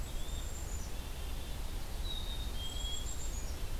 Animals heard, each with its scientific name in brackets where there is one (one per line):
Yellow-bellied Flycatcher (Empidonax flaviventris)
Ovenbird (Seiurus aurocapilla)
Black-capped Chickadee (Poecile atricapillus)